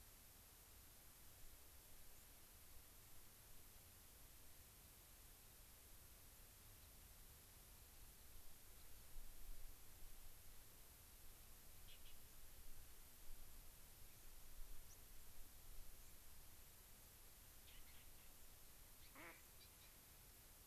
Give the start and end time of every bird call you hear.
[14.91, 15.01] White-crowned Sparrow (Zonotrichia leucophrys)
[19.01, 19.11] Gray-crowned Rosy-Finch (Leucosticte tephrocotis)
[19.11, 19.31] Mallard (Anas platyrhynchos)

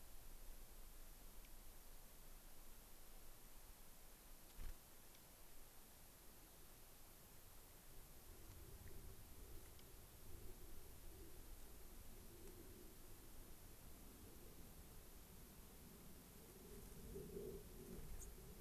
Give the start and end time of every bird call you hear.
[1.42, 1.52] Dark-eyed Junco (Junco hyemalis)
[4.52, 4.82] unidentified bird
[5.12, 5.22] Dark-eyed Junco (Junco hyemalis)
[8.82, 8.92] Dark-eyed Junco (Junco hyemalis)
[9.72, 9.82] Dark-eyed Junco (Junco hyemalis)
[18.12, 18.32] Dark-eyed Junco (Junco hyemalis)

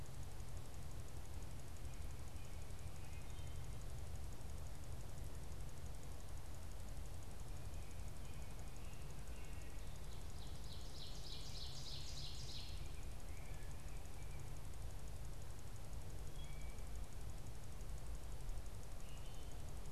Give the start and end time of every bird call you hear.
[2.83, 3.63] Wood Thrush (Hylocichla mustelina)
[7.93, 10.13] American Robin (Turdus migratorius)
[9.83, 13.03] Ovenbird (Seiurus aurocapilla)
[12.63, 14.73] American Robin (Turdus migratorius)
[16.13, 17.03] Wood Thrush (Hylocichla mustelina)

